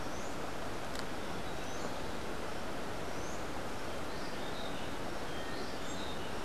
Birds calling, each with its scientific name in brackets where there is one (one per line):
Buff-throated Saltator (Saltator maximus)
Rufous-breasted Wren (Pheugopedius rutilus)